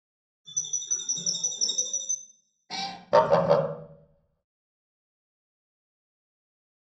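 At 0.44 seconds, there is chirping. Then at 2.69 seconds, a cat meows. After that, at 3.11 seconds, you can hear fowl.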